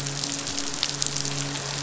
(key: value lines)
label: biophony, midshipman
recorder: SoundTrap 500